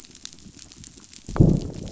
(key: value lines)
label: biophony, growl
recorder: SoundTrap 500